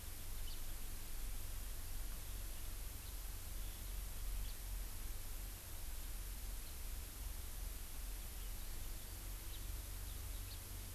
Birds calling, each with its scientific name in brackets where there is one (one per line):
House Finch (Haemorhous mexicanus)